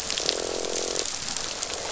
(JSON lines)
{"label": "biophony, croak", "recorder": "SoundTrap 500"}